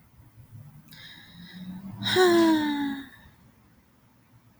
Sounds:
Sigh